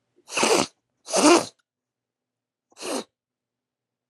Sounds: Sniff